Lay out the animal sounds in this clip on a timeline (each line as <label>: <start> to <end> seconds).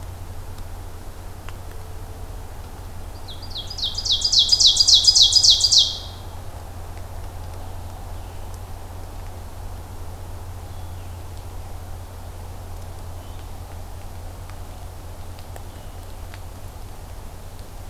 Ovenbird (Seiurus aurocapilla): 3.0 to 6.3 seconds
Blue-headed Vireo (Vireo solitarius): 8.0 to 16.2 seconds